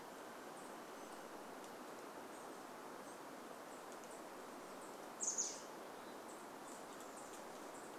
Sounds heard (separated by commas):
Douglas squirrel rattle, Chestnut-backed Chickadee call